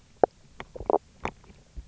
{"label": "biophony, knock croak", "recorder": "SoundTrap 300"}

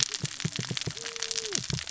{"label": "biophony, cascading saw", "recorder": "SoundTrap 600 or HydroMoth"}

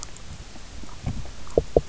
{"label": "biophony, knock", "recorder": "SoundTrap 300"}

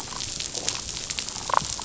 {"label": "biophony, damselfish", "recorder": "SoundTrap 500"}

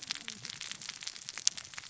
{"label": "biophony, cascading saw", "recorder": "SoundTrap 600 or HydroMoth"}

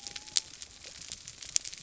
{"label": "biophony", "recorder": "SoundTrap 300"}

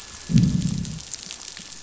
{"label": "biophony, growl", "recorder": "SoundTrap 500"}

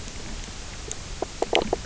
{"label": "biophony, knock croak", "recorder": "SoundTrap 300"}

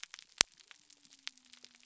{"label": "biophony", "recorder": "SoundTrap 300"}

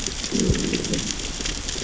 {"label": "biophony, growl", "recorder": "SoundTrap 600 or HydroMoth"}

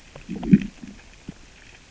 {"label": "biophony, growl", "recorder": "SoundTrap 600 or HydroMoth"}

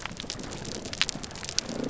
{"label": "biophony, damselfish", "recorder": "SoundTrap 300"}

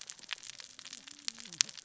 {"label": "biophony, cascading saw", "recorder": "SoundTrap 600 or HydroMoth"}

